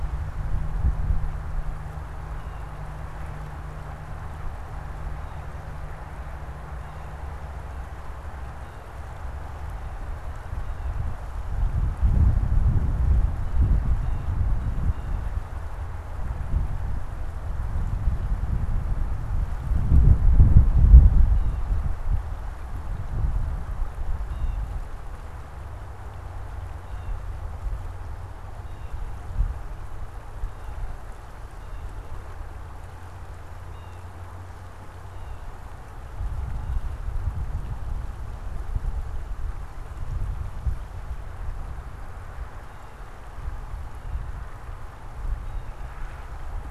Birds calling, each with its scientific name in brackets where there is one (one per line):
unidentified bird